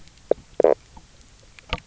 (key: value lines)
label: biophony, knock croak
recorder: SoundTrap 300